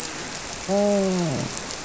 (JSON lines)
{"label": "biophony, grouper", "recorder": "SoundTrap 300"}